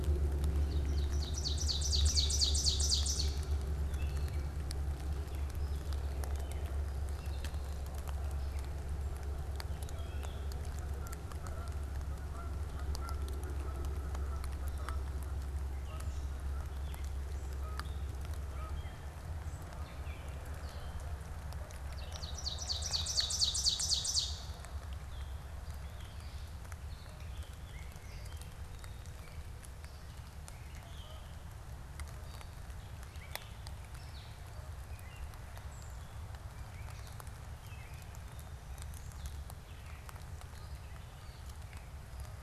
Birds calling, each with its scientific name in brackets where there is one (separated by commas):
Canada Goose (Branta canadensis), Ovenbird (Seiurus aurocapilla), Gray Catbird (Dumetella carolinensis)